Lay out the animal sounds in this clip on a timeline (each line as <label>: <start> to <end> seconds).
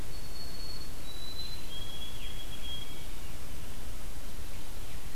White-throated Sparrow (Zonotrichia albicollis): 0.0 to 3.3 seconds